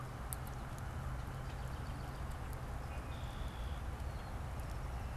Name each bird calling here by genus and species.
Turdus migratorius, Agelaius phoeniceus